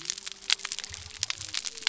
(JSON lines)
{"label": "biophony", "recorder": "SoundTrap 300"}